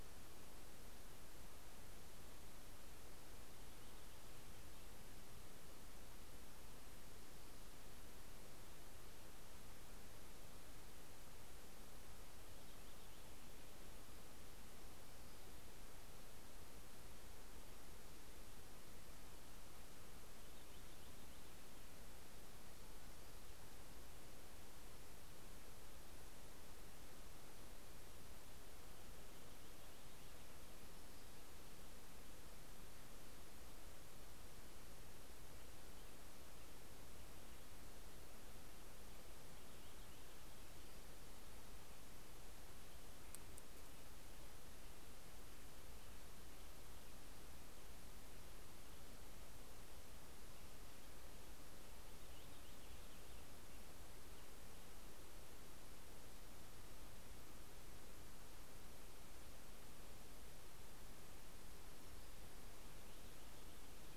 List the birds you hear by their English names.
Purple Finch